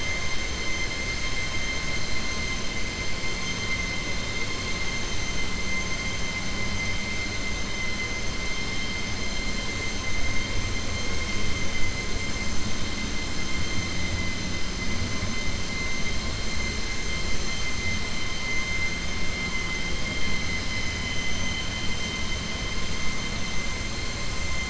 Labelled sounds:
20.5	21.7	vessel noise, 2.0 to 6.2 kHz

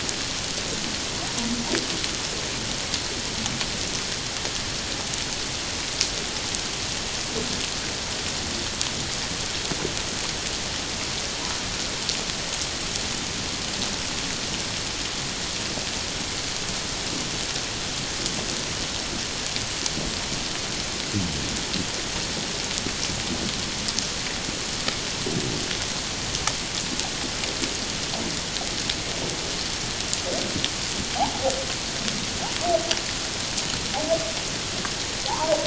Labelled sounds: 31.1	31.5	humpback whale, 0.78 to 1.0 kHz
35.3	35.6	humpback whale, 0.78 to 1.3 kHz

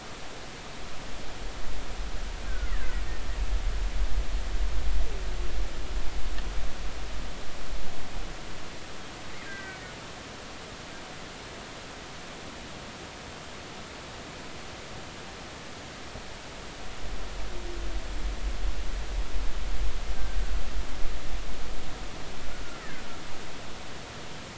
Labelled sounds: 2.5	3.0	killer whale, Bigg's (transient), 1.2 to 2.1 kHz
9.4	9.8	killer whale, Bigg's (transient), 1.5 to 2.0 kHz
22.7	23.0	killer whale, Bigg's (transient), 1.4 to 2.1 kHz

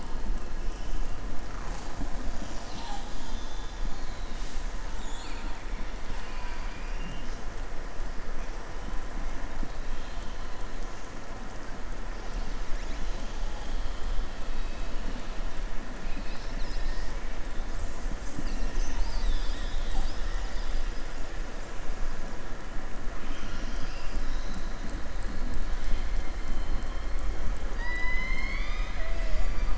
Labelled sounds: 4.9	5.6	killer whale, southern resident, 0.95 to 4.7 kHz
6.0	7.3	killer whale, southern resident, 0.98 to 5.0 kHz
27.7	29.7	killer whale, southern resident, 0.63 to 6.9 kHz

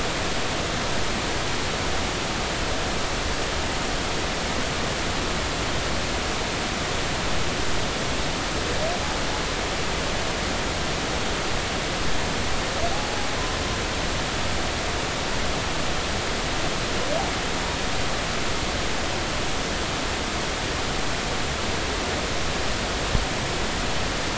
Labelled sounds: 12.9	13.3	humpback whale, 0.80 to 0.90 kHz

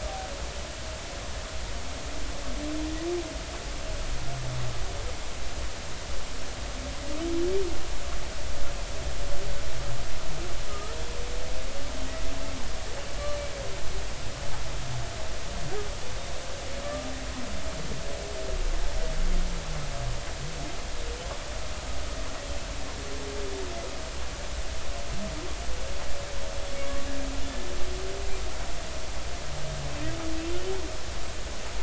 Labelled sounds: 10.7	11.0	humpback whale, 1.2 to 1.4 kHz
16.8	17.1	humpback whale, 1.1 to 1.2 kHz
26.8	27.1	humpback whale, 1.1 to 1.2 kHz
30.4	30.7	humpback whale, 2.6 to 3.1 kHz

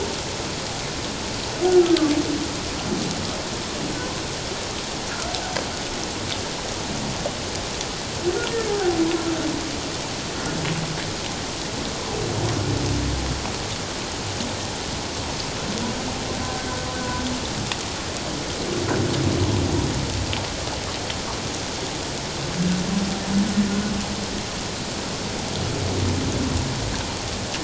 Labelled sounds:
1.7	2.1	humpback whale, 1.1 to 1.5 kHz
8.7	9.0	humpback whale, 0.78 to 0.91 kHz

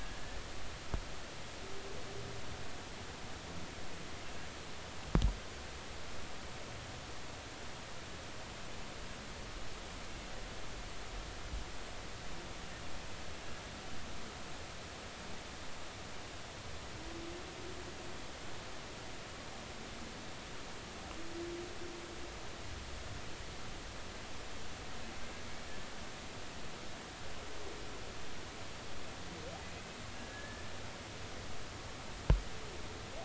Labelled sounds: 0.0	0.4	humpback whale, 1.5 to 1.8 kHz
30.1	30.6	humpback whale, 1.6 to 1.8 kHz

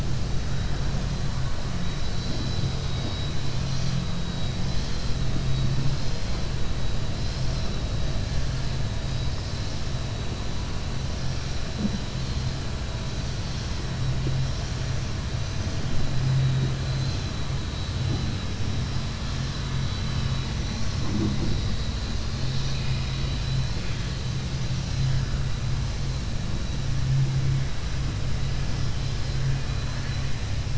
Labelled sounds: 29.3	30.4	vessel noise, 1.0 to 4.6 kHz

